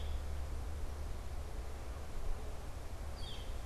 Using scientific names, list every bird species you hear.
Colaptes auratus